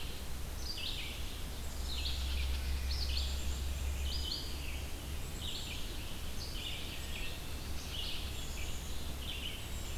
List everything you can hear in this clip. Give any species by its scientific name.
Poecile atricapillus, unknown mammal, Vireo olivaceus